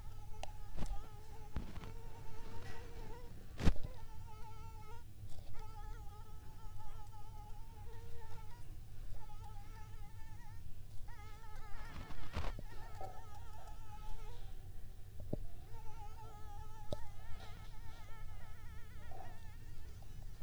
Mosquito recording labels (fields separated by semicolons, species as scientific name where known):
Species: Anopheles arabiensis; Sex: female; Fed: unfed; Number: one; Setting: cup